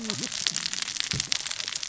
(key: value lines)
label: biophony, cascading saw
recorder: SoundTrap 600 or HydroMoth